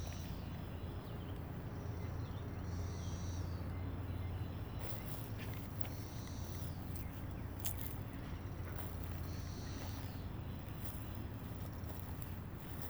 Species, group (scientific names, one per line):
Magicicada cassini
Cicadidae